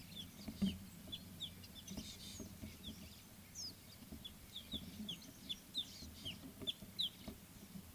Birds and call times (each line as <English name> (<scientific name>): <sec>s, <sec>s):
Scarlet-chested Sunbird (Chalcomitra senegalensis): 1.1s, 5.7s
Rattling Cisticola (Cisticola chiniana): 2.2s